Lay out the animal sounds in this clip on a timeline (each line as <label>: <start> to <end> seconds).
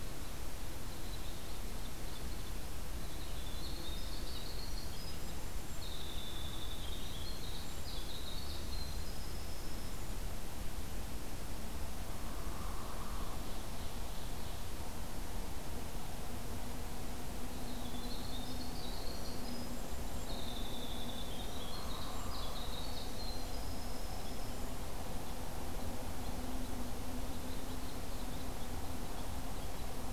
Red Crossbill (Loxia curvirostra): 0.0 to 5.5 seconds
Winter Wren (Troglodytes hiemalis): 3.0 to 10.2 seconds
Hairy Woodpecker (Dryobates villosus): 12.2 to 13.4 seconds
Ovenbird (Seiurus aurocapilla): 12.7 to 14.7 seconds
Winter Wren (Troglodytes hiemalis): 17.5 to 24.8 seconds
Red Crossbill (Loxia curvirostra): 19.4 to 30.1 seconds
Hairy Woodpecker (Dryobates villosus): 21.5 to 22.7 seconds